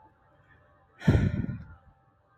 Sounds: Sigh